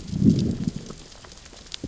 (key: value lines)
label: biophony, growl
recorder: SoundTrap 600 or HydroMoth